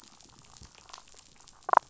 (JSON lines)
{"label": "biophony", "recorder": "SoundTrap 500"}
{"label": "biophony, damselfish", "recorder": "SoundTrap 500"}